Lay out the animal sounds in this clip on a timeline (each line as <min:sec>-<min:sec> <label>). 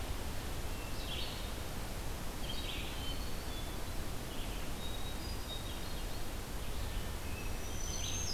0:00.0-0:08.3 Red-eyed Vireo (Vireo olivaceus)
0:00.6-0:01.7 Hermit Thrush (Catharus guttatus)
0:02.5-0:03.5 Eastern Wood-Pewee (Contopus virens)
0:04.5-0:06.3 Hermit Thrush (Catharus guttatus)
0:06.9-0:08.1 Hermit Thrush (Catharus guttatus)
0:07.3-0:08.3 Black-throated Green Warbler (Setophaga virens)